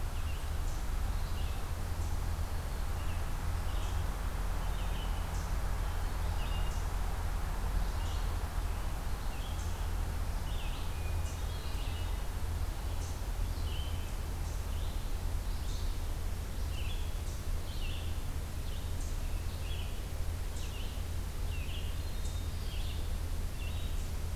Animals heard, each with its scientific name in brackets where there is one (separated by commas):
Eastern Chipmunk (Tamias striatus), Hermit Thrush (Catharus guttatus), Red-eyed Vireo (Vireo olivaceus)